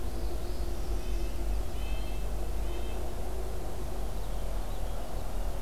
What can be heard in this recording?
Northern Parula, Red-breasted Nuthatch, American Goldfinch